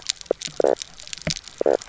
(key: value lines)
label: biophony, knock croak
recorder: SoundTrap 300